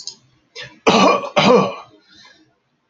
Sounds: Cough